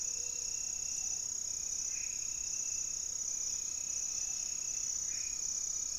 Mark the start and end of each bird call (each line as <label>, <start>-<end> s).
Gray-fronted Dove (Leptotila rufaxilla), 0.0-0.7 s
Black-faced Antthrush (Formicarius analis), 0.0-6.0 s
Great Antshrike (Taraba major), 3.1-6.0 s